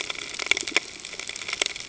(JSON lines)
{"label": "ambient", "recorder": "HydroMoth"}